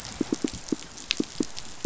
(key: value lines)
label: biophony, pulse
recorder: SoundTrap 500